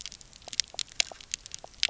{"label": "biophony, pulse", "recorder": "SoundTrap 300"}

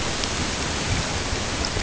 {"label": "ambient", "recorder": "HydroMoth"}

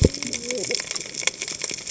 {"label": "biophony, cascading saw", "recorder": "HydroMoth"}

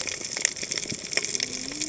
{"label": "biophony, cascading saw", "recorder": "HydroMoth"}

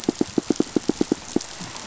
{"label": "biophony, pulse", "recorder": "SoundTrap 500"}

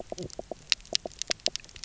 {"label": "biophony, knock croak", "recorder": "SoundTrap 300"}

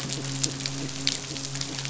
{"label": "biophony, midshipman", "recorder": "SoundTrap 500"}
{"label": "biophony", "recorder": "SoundTrap 500"}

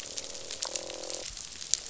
{"label": "biophony, croak", "recorder": "SoundTrap 500"}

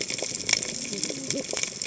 {"label": "biophony, cascading saw", "recorder": "HydroMoth"}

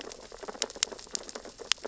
{"label": "biophony, sea urchins (Echinidae)", "recorder": "SoundTrap 600 or HydroMoth"}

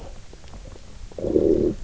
{"label": "biophony, low growl", "recorder": "SoundTrap 300"}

